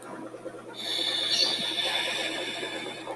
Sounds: Throat clearing